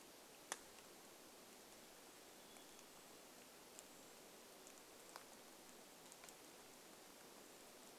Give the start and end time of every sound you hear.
0s-8s: rain
2s-4s: Black-capped Chickadee song

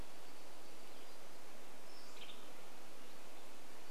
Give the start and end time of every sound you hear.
0s-2s: Hutton's Vireo song
0s-4s: warbler song
2s-4s: Western Tanager call

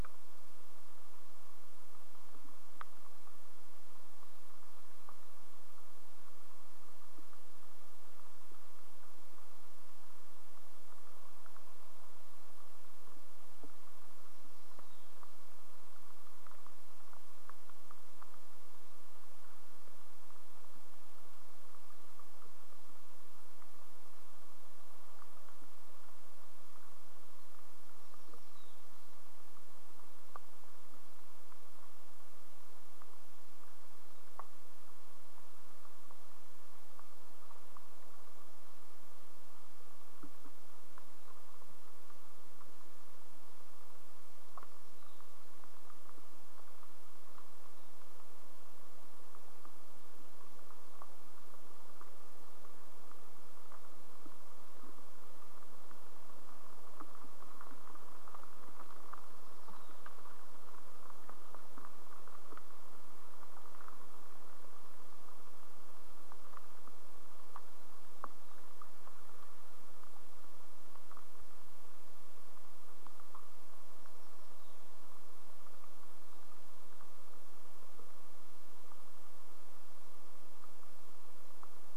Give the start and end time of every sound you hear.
14s-16s: unidentified bird chip note
14s-16s: unidentified sound
28s-30s: unidentified sound
44s-46s: unidentified sound
74s-76s: unidentified sound

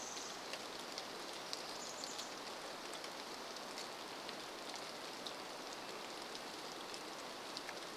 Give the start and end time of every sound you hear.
0s-2s: Pacific Wren song
0s-4s: Chestnut-backed Chickadee call
0s-8s: rain
4s-8s: Red-breasted Nuthatch song

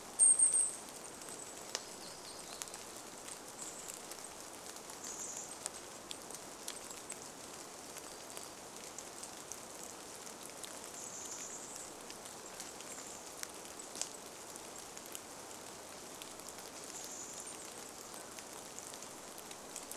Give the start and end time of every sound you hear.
0s-2s: Golden-crowned Kinglet call
0s-4s: warbler song
0s-8s: Golden-crowned Kinglet song
0s-20s: rain
2s-6s: Chestnut-backed Chickadee call
8s-10s: warbler song
10s-12s: Chestnut-backed Chickadee call
12s-20s: Golden-crowned Kinglet song
16s-18s: Chestnut-backed Chickadee call

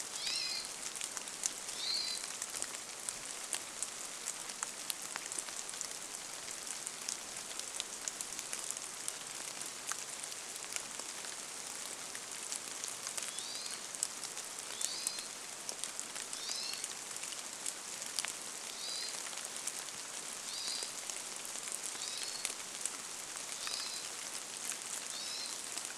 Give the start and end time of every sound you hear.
0s-4s: Hermit Thrush call
0s-26s: rain
12s-20s: Hermit Thrush call

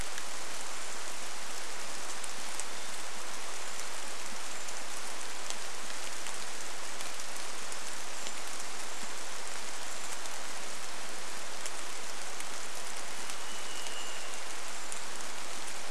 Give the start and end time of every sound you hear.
0s-6s: Brown Creeper call
0s-16s: rain
2s-4s: Varied Thrush song
8s-12s: Brown Creeper call
12s-16s: Varied Thrush song
14s-16s: Brown Creeper call

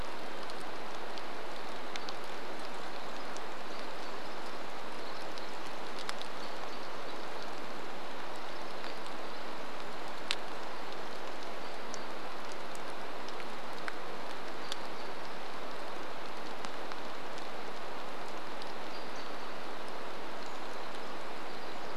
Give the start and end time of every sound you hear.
0s-22s: rain
2s-10s: Pacific Wren song
6s-8s: American Robin call
10s-16s: American Robin call
18s-20s: American Robin call
20s-22s: Brown Creeper call
20s-22s: Pacific Wren song

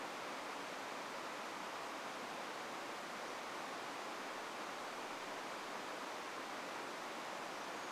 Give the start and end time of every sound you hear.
6s-8s: Brown Creeper call

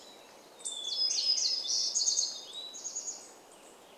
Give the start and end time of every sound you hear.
0s-2s: Hermit Thrush song
0s-4s: unidentified bird chip note
0s-4s: warbler song

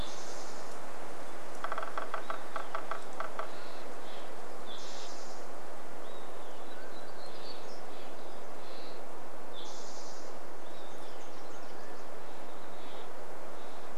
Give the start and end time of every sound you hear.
0s-2s: Spotted Towhee song
0s-4s: woodpecker drumming
2s-4s: Olive-sided Flycatcher song
2s-10s: Steller's Jay call
4s-6s: Spotted Towhee song
6s-8s: Mountain Quail call
6s-8s: Olive-sided Flycatcher song
6s-8s: warbler song
8s-12s: Spotted Towhee song
10s-12s: Mountain Quail call
10s-12s: Nashville Warbler song
10s-12s: Olive-sided Flycatcher song
12s-14s: Steller's Jay call

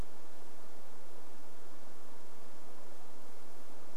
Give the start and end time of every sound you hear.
2s-4s: Pacific-slope Flycatcher call

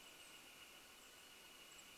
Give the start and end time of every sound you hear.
0s-2s: Golden-crowned Kinglet call
0s-2s: Northern Flicker call

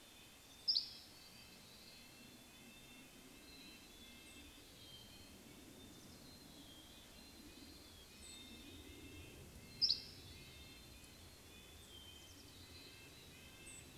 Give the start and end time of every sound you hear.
0s-2s: Dusky Flycatcher song
0s-2s: Hermit Thrush song
0s-14s: Red-breasted Nuthatch song
2s-14s: Mountain Chickadee song
8s-10s: Dark-eyed Junco call
8s-10s: Dusky Flycatcher song
12s-14s: Dark-eyed Junco call
12s-14s: Golden-crowned Kinglet call

